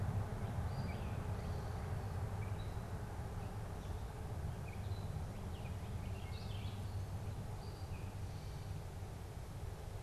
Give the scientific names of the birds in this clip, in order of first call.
Dumetella carolinensis, Vireo olivaceus